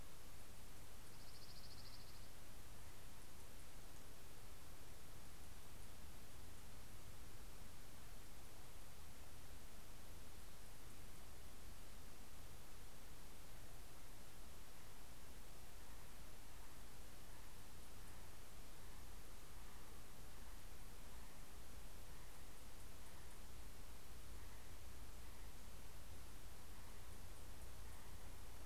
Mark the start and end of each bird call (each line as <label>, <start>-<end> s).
Dark-eyed Junco (Junco hyemalis), 0.7-3.3 s